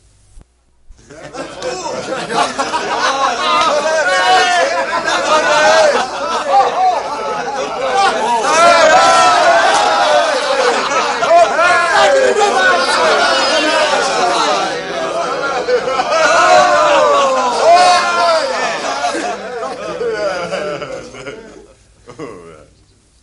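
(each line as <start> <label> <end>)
1.1 Multiple men laughing and shouting simultaneously, fading away at the end. 20.6
19.7 A man's laughter fading away. 23.2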